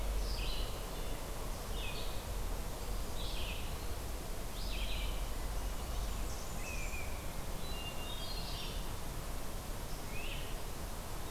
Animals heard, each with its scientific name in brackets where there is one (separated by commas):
Hermit Thrush (Catharus guttatus), Red-eyed Vireo (Vireo olivaceus), Great Crested Flycatcher (Myiarchus crinitus), Blackburnian Warbler (Setophaga fusca), unidentified call